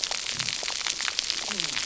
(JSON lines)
{"label": "biophony, cascading saw", "recorder": "SoundTrap 300"}